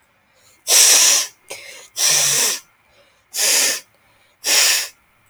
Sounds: Sneeze